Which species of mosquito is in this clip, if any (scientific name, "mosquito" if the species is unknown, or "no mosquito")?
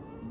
mosquito